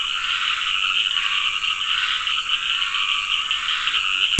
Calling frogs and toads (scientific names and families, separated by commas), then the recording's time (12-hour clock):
Dendropsophus nahdereri (Hylidae), Scinax perereca (Hylidae)
7:15pm